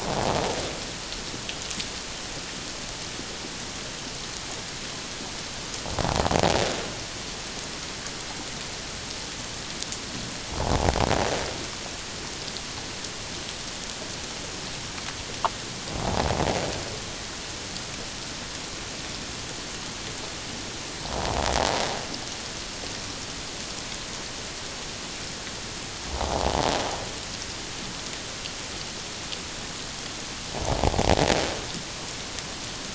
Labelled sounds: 26.1	26.4	invertebrate grinding on or near the hydrophone, 0.78 to 1.0 kHz

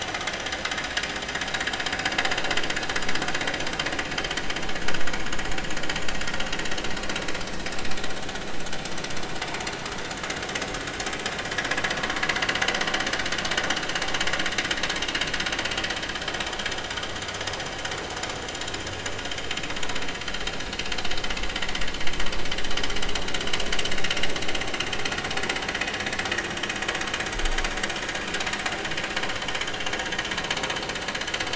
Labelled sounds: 8.2	8.5	vessel noise, 3.3 to 3.6 kHz

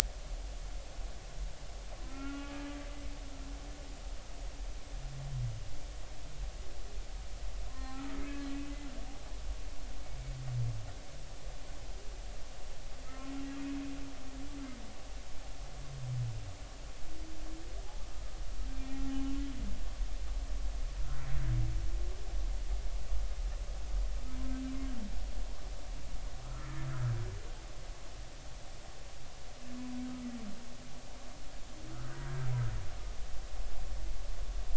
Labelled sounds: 2.1	2.7	humpback whale, 1.1 to 2.6 kHz
7.7	8.1	humpback whale, 0.99 to 2.0 kHz
13.0	13.3	humpback whale, 1.2 to 1.4 kHz
19.0	19.3	humpback whale, 0.80 to 0.86 kHz
26.4	26.7	humpback whale, 1.2 to 1.4 kHz

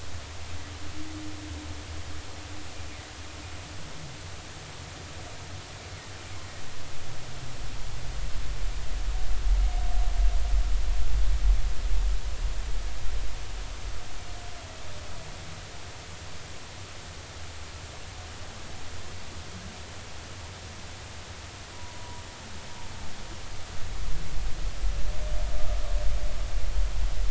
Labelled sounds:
21.7	22.2	humpback whale, 0.93 to 1.0 kHz

